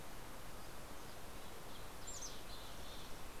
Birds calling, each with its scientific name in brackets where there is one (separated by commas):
Mountain Chickadee (Poecile gambeli)